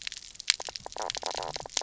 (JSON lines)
{"label": "biophony, knock croak", "recorder": "SoundTrap 300"}